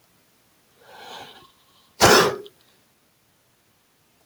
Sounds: Sneeze